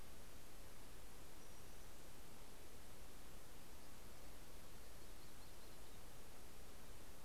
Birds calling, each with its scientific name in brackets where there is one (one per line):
Yellow-rumped Warbler (Setophaga coronata)